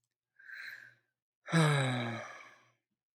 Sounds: Sigh